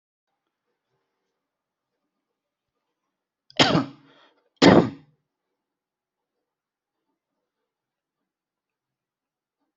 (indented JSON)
{
  "expert_labels": [
    {
      "quality": "good",
      "cough_type": "dry",
      "dyspnea": false,
      "wheezing": false,
      "stridor": false,
      "choking": false,
      "congestion": false,
      "nothing": true,
      "diagnosis": "healthy cough",
      "severity": "pseudocough/healthy cough"
    }
  ],
  "age": 28,
  "gender": "male",
  "respiratory_condition": false,
  "fever_muscle_pain": true,
  "status": "symptomatic"
}